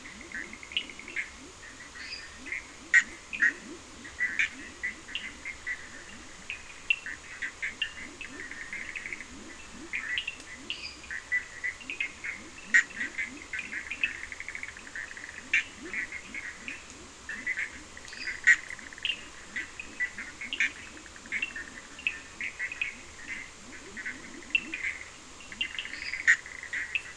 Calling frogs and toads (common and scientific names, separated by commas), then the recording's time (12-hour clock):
Leptodactylus latrans, Bischoff's tree frog (Boana bischoffi), Cochran's lime tree frog (Sphaenorhynchus surdus), lesser tree frog (Dendropsophus minutus)
3:15am